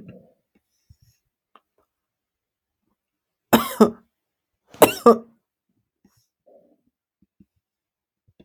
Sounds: Cough